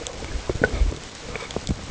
{"label": "ambient", "recorder": "HydroMoth"}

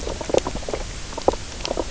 {"label": "biophony, knock croak", "recorder": "SoundTrap 300"}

